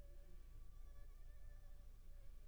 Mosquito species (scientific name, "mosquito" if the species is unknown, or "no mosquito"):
Anopheles funestus s.s.